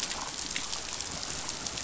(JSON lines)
{"label": "biophony, damselfish", "recorder": "SoundTrap 500"}